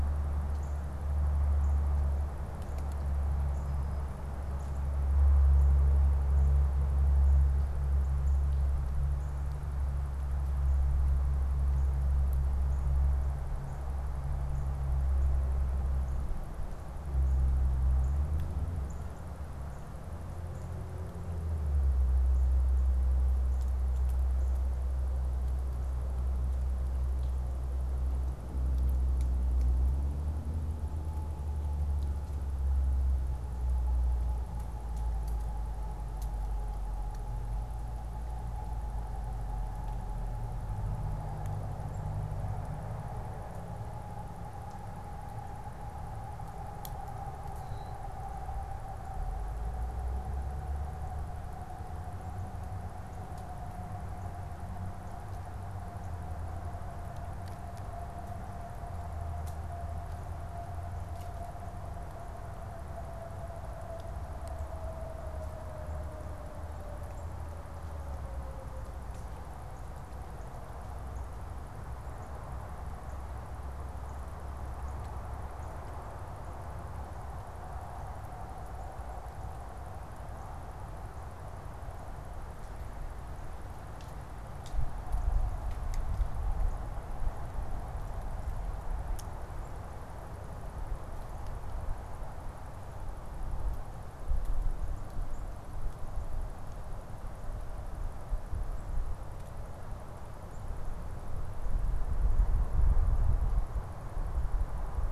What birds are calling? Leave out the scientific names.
American Crow, Common Grackle